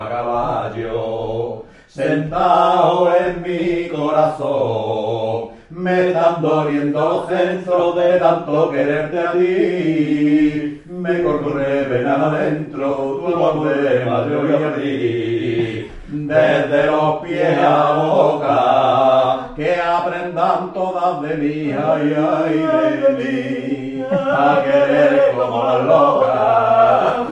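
0.0s Two adults sing in Spanish with harmonious, smooth, and melodic voices conveying warmth and emotion. 27.3s

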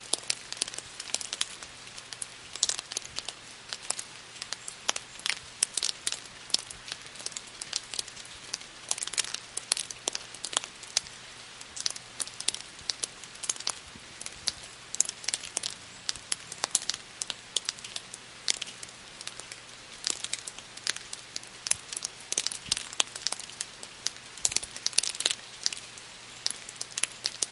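0.0s Soft rainfall sounds continuously. 27.5s
0.0s Sporadic raindrops hit the ground with soft, dull thuds. 27.5s

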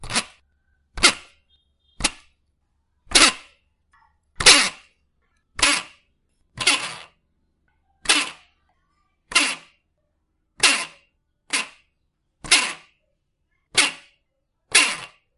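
0.0s A bicycle pedal spins loudly at a fast tempo. 0.3s
0.9s A bicycle pedal spins loudly at a fast tempo. 1.4s
2.0s A bicycle pedal spins loudly at a fast tempo. 2.3s
3.1s A bicycle pedal spins loudly at a fast tempo. 3.6s
4.4s A bicycle pedal spins loudly at a fast tempo. 4.8s
5.6s A bicycle pedal spins loudly at a fast tempo. 7.2s
8.0s A bicycle pedal spins loudly at a fast tempo. 8.5s
9.3s A bicycle pedal spins loudly at a fast tempo. 9.8s
10.6s A bicycle pedal spins loudly at a fast tempo. 11.8s
12.4s A bicycle pedal spins loudly at a fast tempo. 12.9s
13.7s A bicycle pedal spins loudly at a fast tempo. 14.1s
14.7s A bicycle pedal spins loudly at a fast tempo. 15.2s

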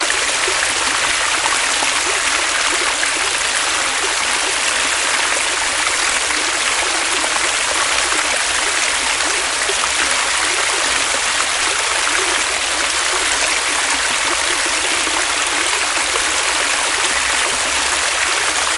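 0.0s Fast water flowing in a creek. 18.8s

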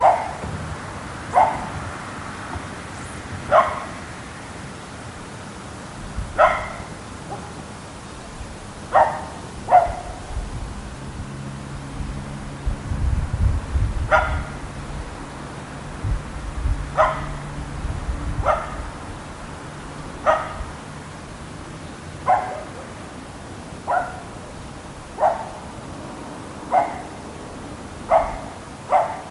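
0.0s A dog barks loudly outdoors. 4.2s
6.0s A dog barks loudly outdoors. 7.7s
8.7s A dog barks loudly outdoors. 20.9s
11.4s A soft engine sound fades away in the distance. 20.9s
22.1s A dog barking in the distance outdoors. 29.3s

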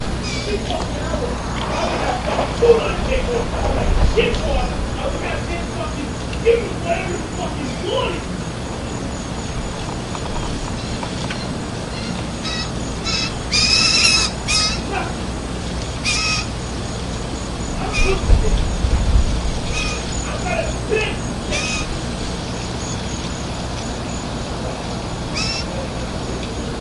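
0.0s A person shouts angrily in the distance. 13.1s
13.1s A seagull caws in a stressed manner. 15.1s
15.1s Seagulls crow while a man shouts angrily in the background. 26.8s

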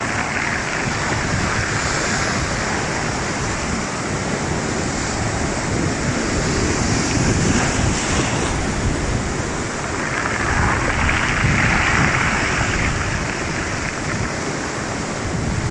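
0.0s A large stream of water flowing with wind. 15.7s

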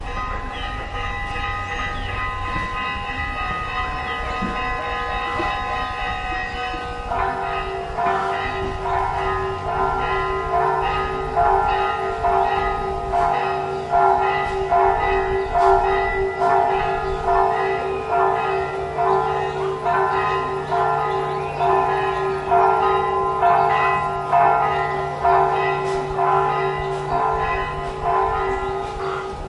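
0.0s A medium-pitched bell rings metallically and very frequently in the distance. 7.1s
7.0s Two bells of different pitches ring metallically and alternately in the distance. 29.5s

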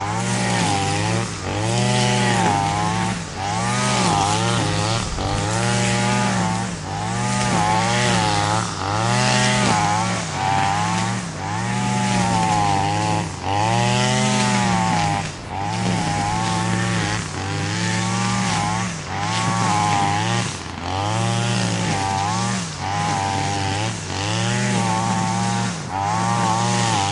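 0.1s Grass is being cut by a trimmer. 27.1s

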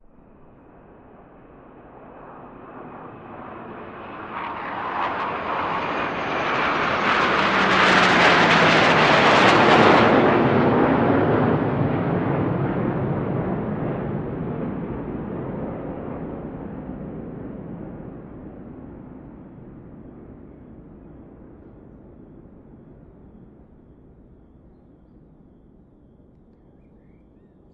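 0.1s A faint jet engine sound blends with the wind, creating a low, distant roar. 5.0s
5.1s A jet flies by closely, producing a deafening roar. 18.5s
18.5s The jet's thunderous roar gradually fades into the distance until it becomes barely audible and then vanishes completely. 27.7s

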